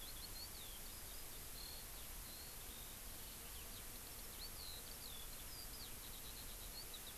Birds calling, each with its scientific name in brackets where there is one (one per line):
Eurasian Skylark (Alauda arvensis)